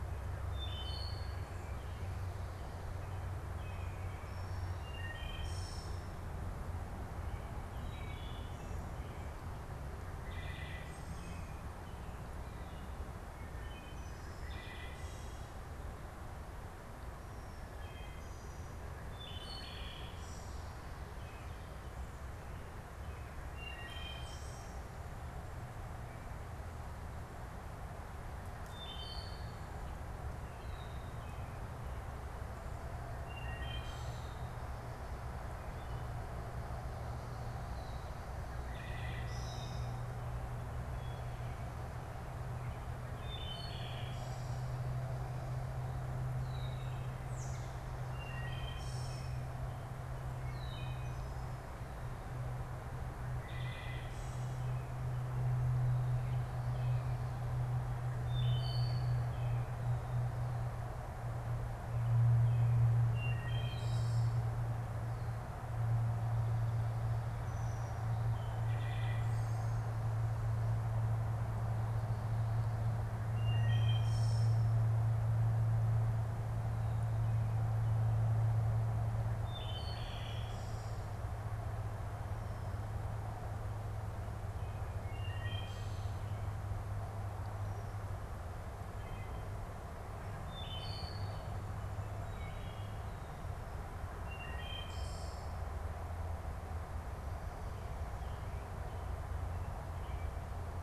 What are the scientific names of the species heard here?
Hylocichla mustelina, Turdus migratorius, Agelaius phoeniceus